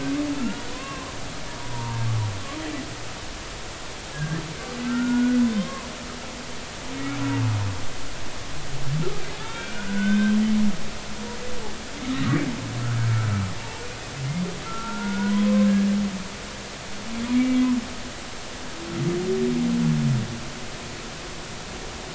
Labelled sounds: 0.4	1.1	humpback whale, 0.96 to 2.9 kHz
2.6	3.1	humpback whale, 0.86 to 1.0 kHz
4.1	5.9	humpback whale, 0.93 to 3.8 kHz
7.0	7.2	humpback whale, 2.1 to 2.4 kHz
9.4	10.4	humpback whale, 1.2 to 3.8 kHz
12.1	12.4	humpback whale, 1.8 to 2.0 kHz
13.6	15.9	humpback whale, 0.83 to 1.7 kHz
17.3	17.6	humpback whale, 2.2 to 2.4 kHz

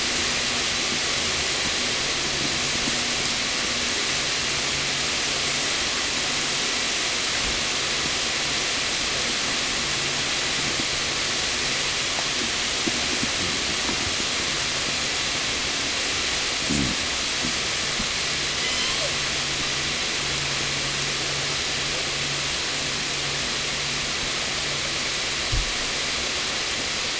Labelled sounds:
18.3	19.4	killer whale, southern resident, 0 to 8.0 kHz

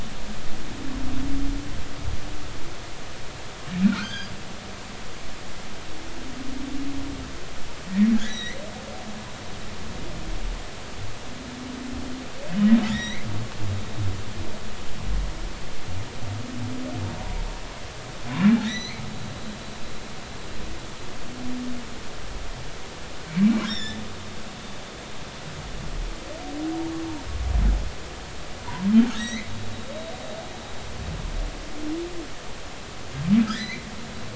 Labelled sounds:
3.9	4.3	humpback whale, 1.2 to 6.7 kHz
8.1	8.6	humpback whale, 1.5 to 6.1 kHz
12.8	13.3	humpback whale, 1.8 to 6.2 kHz
17.2	17.4	humpback whale, 0.86 to 0.99 kHz
18.6	19.0	humpback whale, 1.7 to 6.0 kHz
23.6	24.0	humpback whale, 1.5 to 5.8 kHz
29.1	29.5	humpback whale, 1.6 to 6.7 kHz
33.4	33.9	humpback whale, 1.2 to 4.2 kHz

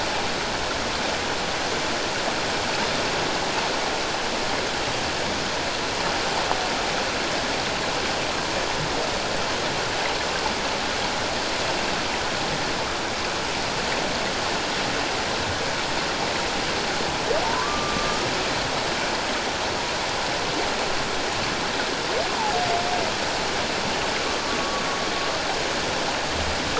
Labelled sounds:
17.4	18.3	humpback whale, 0.88 to 1.3 kHz

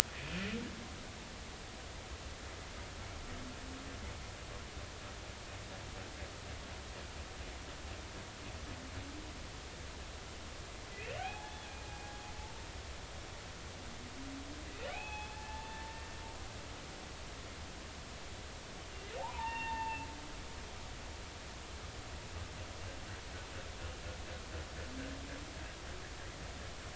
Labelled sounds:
11.0	11.6	humpback whale, 0.80 to 2.8 kHz
14.9	15.8	humpback whale, 0.80 to 3.5 kHz
19.2	20.1	humpback whale, 0.80 to 3.7 kHz

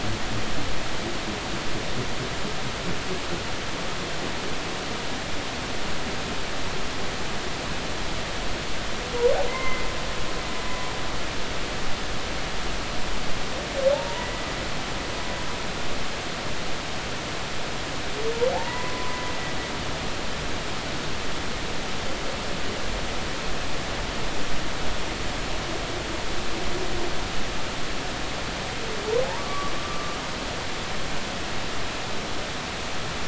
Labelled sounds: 9.5	9.9	humpback whale, 0.90 to 2.3 kHz
13.9	14.5	humpback whale, 0.80 to 2.0 kHz
18.5	19.2	humpback whale, 0.80 to 2.0 kHz
29.4	30.2	humpback whale, 1.1 to 1.3 kHz

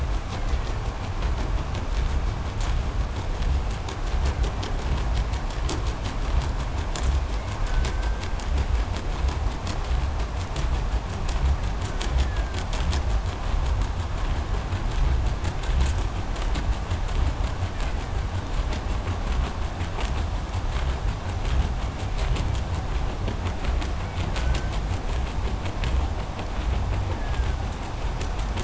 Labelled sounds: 0.0	1.1	killer whale, Bigg's (transient), 0.94 to 2.8 kHz
3.7	5.2	killer whale, Bigg's (transient), 0.90 to 2.9 kHz
7.2	8.5	killer whale, Bigg's (transient), call T07, 1.3 to 2.4 kHz
11.4	12.7	killer whale, Bigg's (transient), call T07, 1.2 to 2.7 kHz
17.5	18.5	killer whale, Bigg's (transient), 1.2 to 2.6 kHz
23.9	25.0	killer whale, Bigg's (transient), call T07, 1.1 to 2.6 kHz
26.9	27.9	killer whale, Bigg's (transient), 1.2 to 2.0 kHz

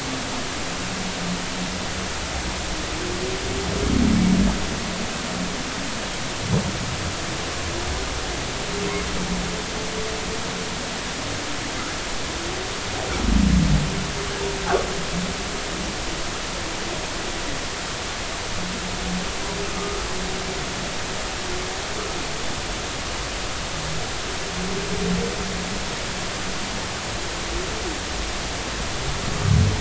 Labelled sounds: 19.6	20.0	humpback whale, 1.1 to 1.3 kHz

